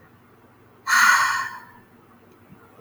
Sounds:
Sigh